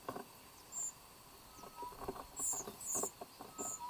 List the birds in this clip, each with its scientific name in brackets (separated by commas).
White-eyed Slaty-Flycatcher (Melaenornis fischeri)